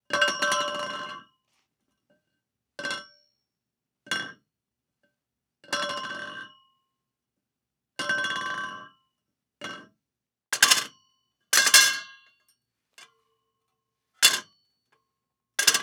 Is there a metal?
yes